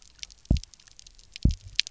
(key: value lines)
label: biophony, double pulse
recorder: SoundTrap 300